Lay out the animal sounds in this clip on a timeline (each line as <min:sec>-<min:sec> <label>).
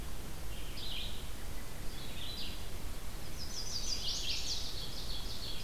0:00.0-0:05.6 Red-eyed Vireo (Vireo olivaceus)
0:03.2-0:04.7 Chestnut-sided Warbler (Setophaga pensylvanica)
0:04.5-0:05.6 Ovenbird (Seiurus aurocapilla)